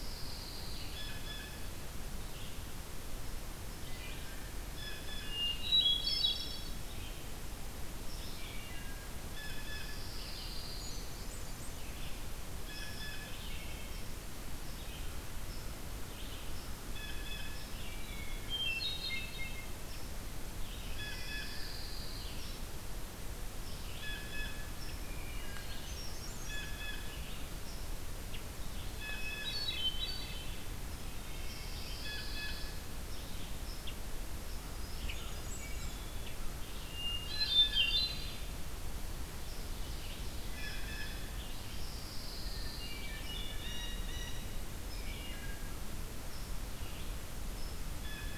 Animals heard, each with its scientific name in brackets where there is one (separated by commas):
Pine Warbler (Setophaga pinus), unknown mammal, Blue Jay (Cyanocitta cristata), Hermit Thrush (Catharus guttatus), Red-eyed Vireo (Vireo olivaceus), Wood Thrush (Hylocichla mustelina)